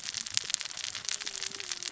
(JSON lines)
{"label": "biophony, cascading saw", "recorder": "SoundTrap 600 or HydroMoth"}